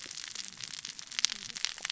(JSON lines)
{"label": "biophony, cascading saw", "recorder": "SoundTrap 600 or HydroMoth"}